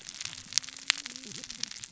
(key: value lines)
label: biophony, cascading saw
recorder: SoundTrap 600 or HydroMoth